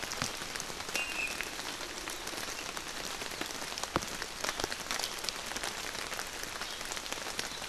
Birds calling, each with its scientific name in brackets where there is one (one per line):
Iiwi (Drepanis coccinea)